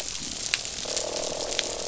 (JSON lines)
{"label": "biophony, croak", "recorder": "SoundTrap 500"}